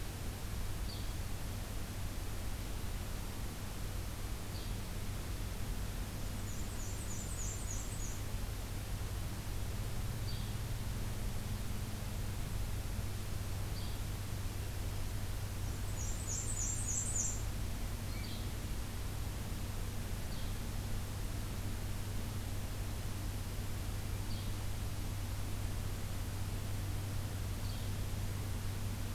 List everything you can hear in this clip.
Yellow-bellied Flycatcher, Black-and-white Warbler